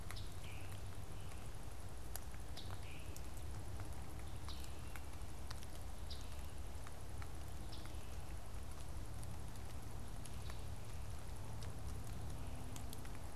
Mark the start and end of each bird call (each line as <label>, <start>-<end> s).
Scarlet Tanager (Piranga olivacea), 0.0-8.4 s